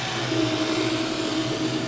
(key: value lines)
label: anthrophony, boat engine
recorder: SoundTrap 500